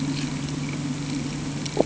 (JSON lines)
{"label": "anthrophony, boat engine", "recorder": "HydroMoth"}